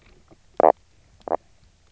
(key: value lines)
label: biophony, knock croak
recorder: SoundTrap 300